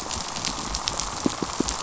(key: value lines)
label: biophony, pulse
recorder: SoundTrap 500